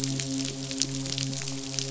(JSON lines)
{"label": "biophony, midshipman", "recorder": "SoundTrap 500"}